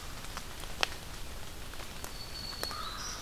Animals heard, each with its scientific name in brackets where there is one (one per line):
American Crow (Corvus brachyrhynchos)
Black-throated Green Warbler (Setophaga virens)